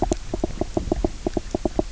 {"label": "biophony, knock croak", "recorder": "SoundTrap 300"}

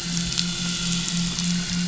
{"label": "anthrophony, boat engine", "recorder": "SoundTrap 500"}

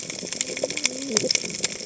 {"label": "biophony, cascading saw", "recorder": "HydroMoth"}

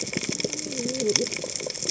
{"label": "biophony, cascading saw", "recorder": "HydroMoth"}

